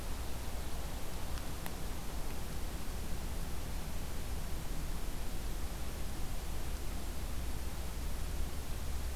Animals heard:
forest ambience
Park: Acadia National Park